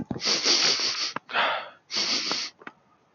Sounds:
Sniff